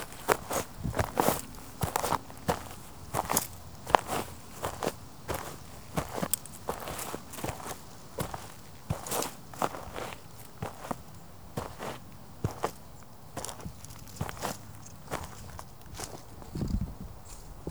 Are there multiple individuals performing this action?
no